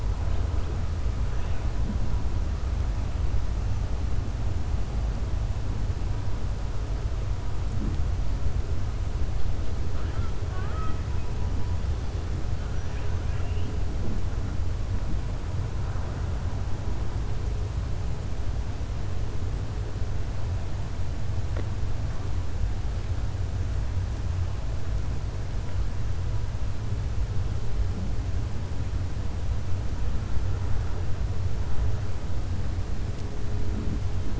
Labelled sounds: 9.9	10.3	killer whale, southern resident, 1.1 to 2.1 kHz
13.2	13.7	killer whale, southern resident, 1.4 to 3.2 kHz

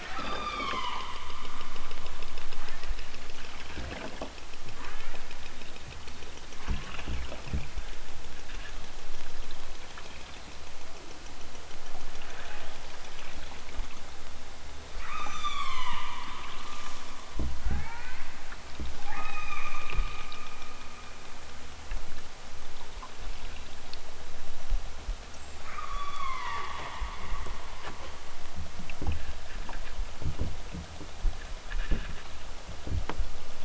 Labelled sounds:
0.0	1.1	killer whale, southern Alaska resident, 0.46 to 7.0 kHz
2.6	3.0	killer whale, southern Alaska resident, 1.1 to 3.6 kHz
4.8	5.3	killer whale, southern Alaska resident, 0.78 to 3.9 kHz
15.0	16.1	killer whale, southern Alaska resident, 0.51 to 8.0 kHz
17.5	18.4	killer whale, southern Alaska resident, 0.32 to 4.6 kHz
18.9	20.2	killer whale, southern Alaska resident, 0.51 to 6.2 kHz
25.5	26.9	killer whale, southern Alaska resident, 0.74 to 6.4 kHz

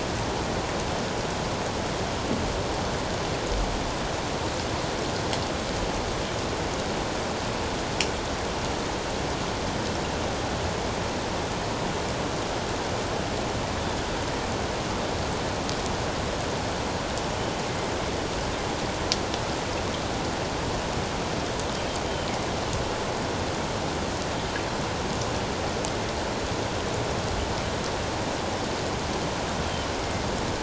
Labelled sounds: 13.8	14.1	killer whale, northern resident, G clan, GG subclan, 3.3 to 3.6 kHz
29.7	29.9	killer whale, northern resident, G clan, GG subclan, 2.8 to 3.2 kHz

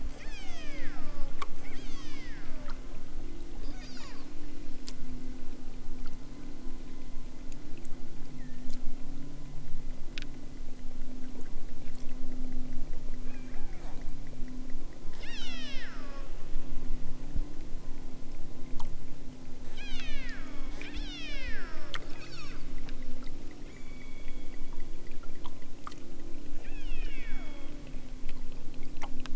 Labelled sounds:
0.1	2.6	killer whale, southern Alaska resident, 0.73 to 8.0 kHz
3.7	4.4	killer whale, southern Alaska resident, 0.83 to 8.0 kHz
13.2	14.1	killer whale, southern Alaska resident, 0.64 to 3.4 kHz
15.1	16.3	killer whale, southern Alaska resident, 0.78 to 8.0 kHz
19.6	22.7	killer whale, southern Alaska resident, 0.64 to 8.0 kHz
23.7	24.7	killer whale, southern Alaska resident, 0.69 to 5.0 kHz
26.6	27.8	killer whale, southern Alaska resident, 0.78 to 5.8 kHz

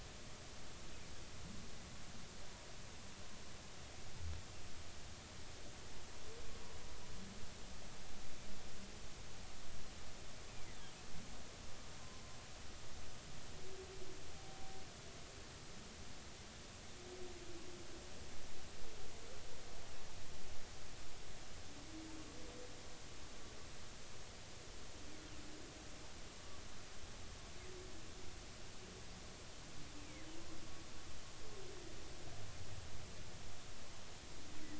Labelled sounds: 14.3	14.8	humpback whale, 0.80 to 0.83 kHz
30.0	30.2	humpback whale, 2.0 to 2.6 kHz

